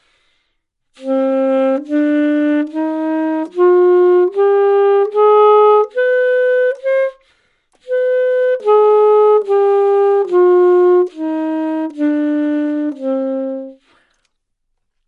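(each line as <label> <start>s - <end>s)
An ascending sequence of distinct pitched notes. 0.8s - 7.4s
A descending sequence of distinct musical notes. 7.8s - 14.1s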